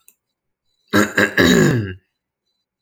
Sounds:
Throat clearing